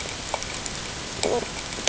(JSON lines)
{"label": "ambient", "recorder": "HydroMoth"}